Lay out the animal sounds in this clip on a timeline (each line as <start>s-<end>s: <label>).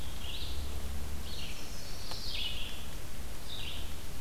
0.0s-4.2s: Red-eyed Vireo (Vireo olivaceus)
1.1s-2.6s: Chestnut-sided Warbler (Setophaga pensylvanica)